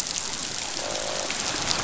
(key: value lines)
label: biophony, croak
recorder: SoundTrap 500